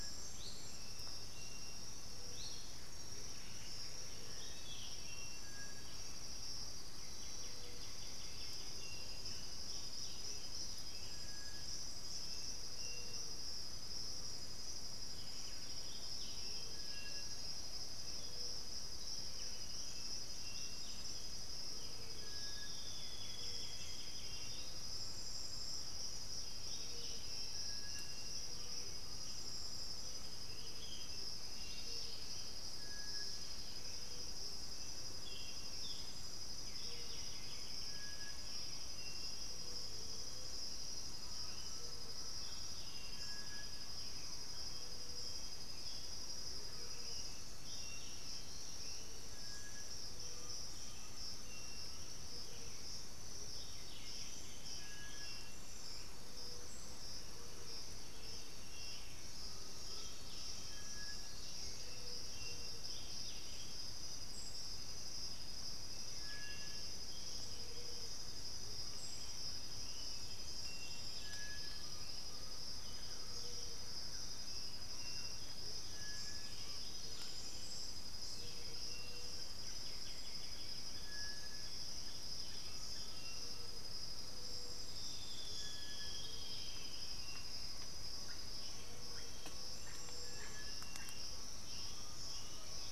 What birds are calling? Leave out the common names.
Tapera naevia, Saltator maximus, Myrmophylax atrothorax, Pachyramphus polychopterus, Patagioenas plumbea, Dendroma erythroptera, Crypturellus undulatus, Megarynchus pitangua, Turdus ignobilis, Campylorhynchus turdinus, Momotus momota, Myiozetetes granadensis, Psarocolius angustifrons, Galbula cyanescens